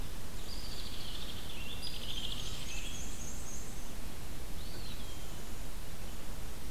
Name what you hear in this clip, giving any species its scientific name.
Vireo olivaceus, Dryobates villosus, Mniotilta varia, Contopus virens